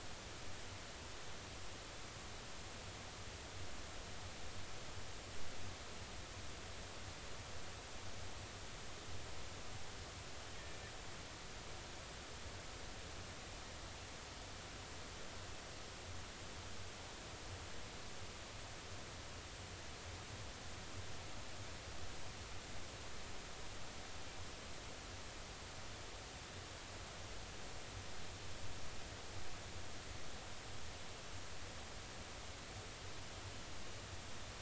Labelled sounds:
10.5	10.8	killer whale, northern resident, A clan, AB subclan, call N01iii, 1.7 to 1.9 kHz

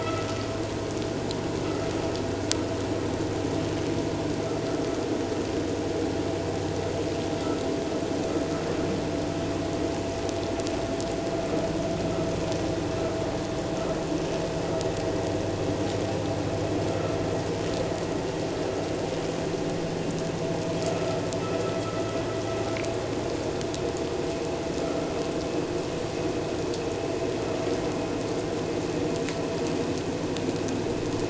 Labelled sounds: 0.0	0.3	vessel noise, 1.2 to 1.4 kHz
20.8	21.2	vessel noise, 1.2 to 1.4 kHz

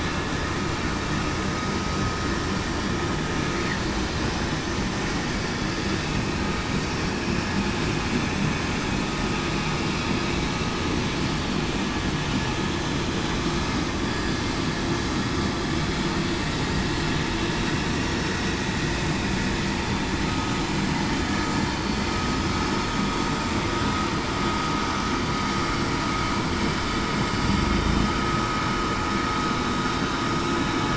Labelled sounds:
27.7	28.1	vessel noise, 3.6 to 3.7 kHz

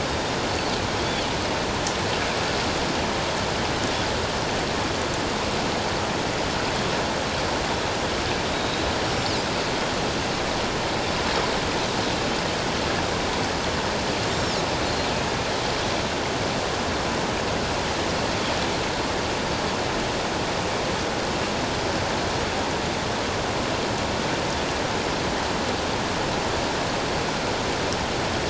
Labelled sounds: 0.1	0.3	Pacific white-sided dolphin, 3.6 to 3.8 kHz
8.5	9.3	Pacific white-sided dolphin, 3.7 to 5.7 kHz
14.3	14.6	Pacific white-sided dolphin, 5.2 to 5.7 kHz

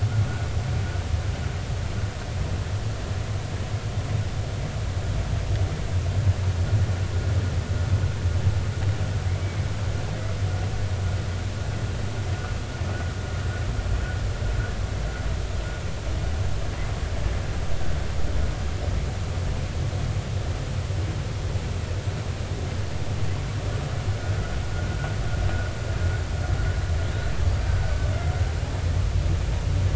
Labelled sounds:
9.4	9.7	killer whale, Bigg's (transient), 2.0 to 2.3 kHz
27.8	28.1	killer whale, Bigg's (transient), 1.4 to 1.6 kHz

